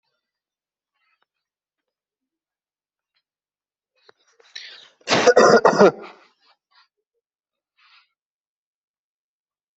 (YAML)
expert_labels:
- quality: good
  cough_type: dry
  dyspnea: false
  wheezing: false
  stridor: false
  choking: false
  congestion: false
  nothing: true
  diagnosis: healthy cough
  severity: mild
age: 25
gender: male
respiratory_condition: false
fever_muscle_pain: true
status: COVID-19